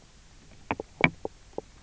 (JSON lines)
{"label": "biophony, knock croak", "recorder": "SoundTrap 300"}